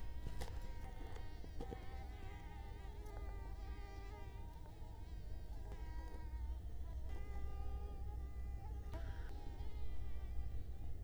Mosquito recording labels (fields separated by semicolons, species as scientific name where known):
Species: Culex quinquefasciatus; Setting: cup